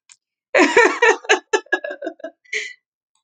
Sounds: Laughter